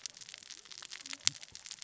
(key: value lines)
label: biophony, cascading saw
recorder: SoundTrap 600 or HydroMoth